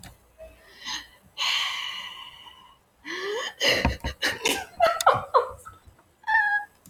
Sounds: Sigh